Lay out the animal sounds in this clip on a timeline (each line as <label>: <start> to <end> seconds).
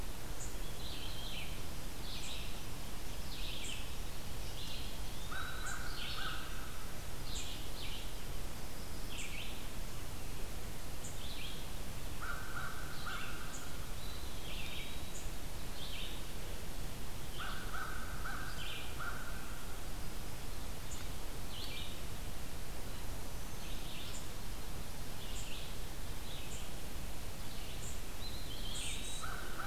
unknown mammal: 0.0 to 15.3 seconds
Red-eyed Vireo (Vireo olivaceus): 0.0 to 19.8 seconds
Eastern Wood-Pewee (Contopus virens): 3.8 to 6.1 seconds
American Crow (Corvus brachyrhynchos): 3.9 to 7.1 seconds
American Crow (Corvus brachyrhynchos): 12.0 to 14.2 seconds
Eastern Wood-Pewee (Contopus virens): 13.8 to 15.4 seconds
American Crow (Corvus brachyrhynchos): 17.0 to 19.8 seconds
unknown mammal: 20.8 to 29.7 seconds
Red-eyed Vireo (Vireo olivaceus): 21.1 to 29.7 seconds
Eastern Wood-Pewee (Contopus virens): 28.0 to 29.7 seconds
American Crow (Corvus brachyrhynchos): 29.0 to 29.7 seconds